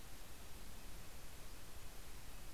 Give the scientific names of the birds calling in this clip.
Sitta canadensis